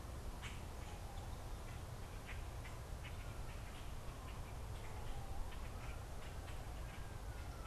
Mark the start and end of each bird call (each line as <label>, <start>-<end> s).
Common Grackle (Quiscalus quiscula), 0.0-7.7 s